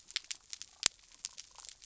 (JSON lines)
{"label": "biophony", "recorder": "SoundTrap 300"}